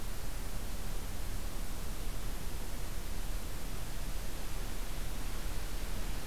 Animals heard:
forest ambience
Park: Acadia National Park